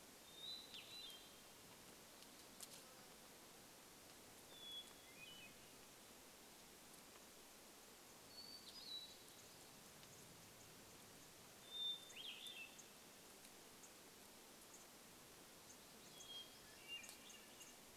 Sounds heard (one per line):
unidentified bird chip note
Hermit Thrush song
insect buzz